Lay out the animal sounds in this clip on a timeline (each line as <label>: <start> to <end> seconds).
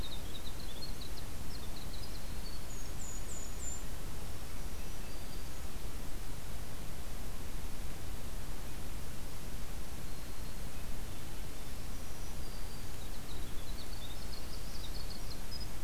Winter Wren (Troglodytes hiemalis): 0.0 to 3.7 seconds
Golden-crowned Kinglet (Regulus satrapa): 2.6 to 4.1 seconds
Black-throated Green Warbler (Setophaga virens): 4.1 to 5.8 seconds
Black-throated Green Warbler (Setophaga virens): 9.8 to 10.8 seconds
Swainson's Thrush (Catharus ustulatus): 10.5 to 11.5 seconds
Black-throated Green Warbler (Setophaga virens): 11.8 to 13.1 seconds
Winter Wren (Troglodytes hiemalis): 12.7 to 15.8 seconds